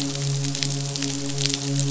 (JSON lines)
{"label": "biophony, midshipman", "recorder": "SoundTrap 500"}